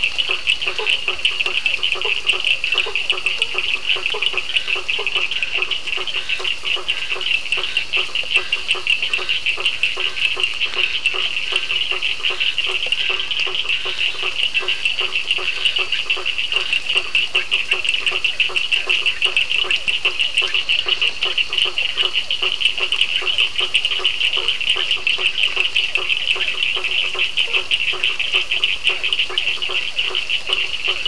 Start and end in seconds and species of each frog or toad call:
0.0	31.0	Boana faber
0.0	31.0	Physalaemus cuvieri
0.0	31.0	Sphaenorhynchus surdus
2.5	16.9	Scinax perereca
7:30pm

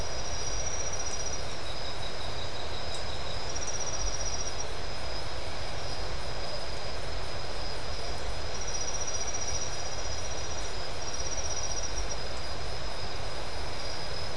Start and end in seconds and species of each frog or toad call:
none
1am

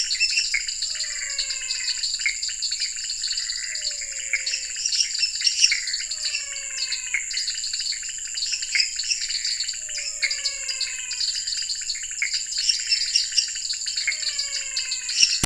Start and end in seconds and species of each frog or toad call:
0.0	1.0	Dendropsophus minutus
0.0	7.4	Physalaemus albonotatus
0.0	15.4	Dendropsophus nanus
0.0	15.4	Leptodactylus podicipinus
2.1	2.3	Scinax fuscovarius
4.1	15.4	Dendropsophus minutus
9.7	11.5	Physalaemus albonotatus
14.0	15.2	Physalaemus albonotatus
9pm

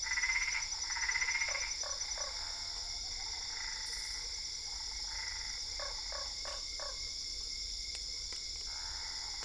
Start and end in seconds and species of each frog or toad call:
0.0	5.7	Boana albopunctata
1.4	2.5	Boana lundii
5.8	7.1	Boana lundii
~9pm

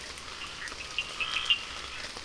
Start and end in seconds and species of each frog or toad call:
0.9	1.6	Sphaenorhynchus surdus
1.1	1.7	Scinax perereca
7:30pm

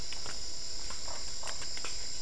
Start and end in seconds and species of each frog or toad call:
1.0	1.7	Boana lundii
9:30pm

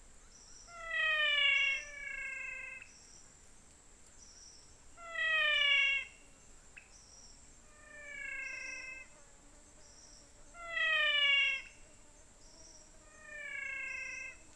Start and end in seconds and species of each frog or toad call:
0.6	3.1	Physalaemus albonotatus
5.0	6.3	Physalaemus albonotatus
7.7	9.2	Physalaemus albonotatus
10.4	12.0	Physalaemus albonotatus
12.9	14.5	Physalaemus albonotatus
~6pm

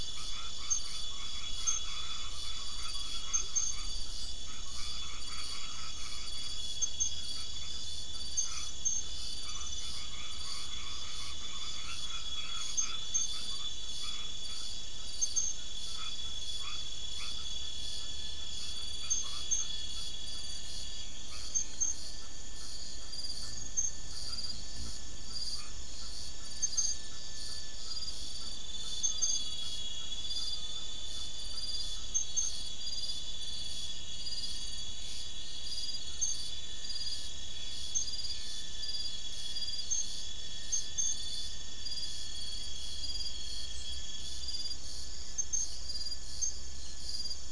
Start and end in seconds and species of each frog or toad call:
0.0	32.7	Boana albomarginata
~7pm

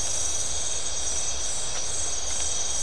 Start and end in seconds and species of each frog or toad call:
none
~midnight

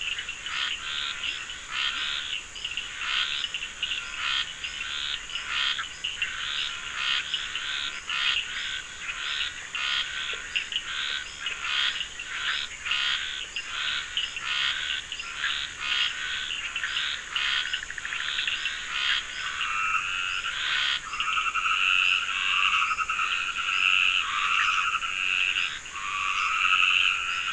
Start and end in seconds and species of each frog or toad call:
0.0	19.0	Sphaenorhynchus surdus
0.0	27.5	Scinax perereca
1.2	2.2	Leptodactylus latrans
5.7	5.9	Boana bischoffi
8.5	8.7	Boana bischoffi
10.2	11.7	Leptodactylus latrans
13.4	13.6	Leptodactylus latrans
19.6	27.5	Dendropsophus nahdereri
9:30pm

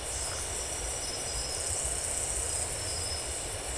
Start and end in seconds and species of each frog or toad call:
0.2	0.5	Phyllomedusa distincta
12:30am

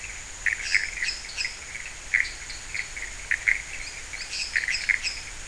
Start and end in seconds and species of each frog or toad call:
0.0	5.4	Leptodactylus podicipinus
0.0	5.4	Pithecopus azureus
0.5	1.6	Dendropsophus minutus
2.2	2.9	Dendropsophus nanus
4.3	5.3	Dendropsophus minutus
~4am

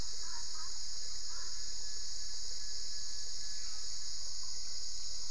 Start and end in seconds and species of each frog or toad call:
none
~1am

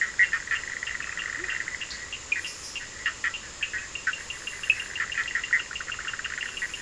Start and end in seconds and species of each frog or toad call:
0.0	6.8	Sphaenorhynchus surdus
1.2	1.7	Leptodactylus latrans
1am

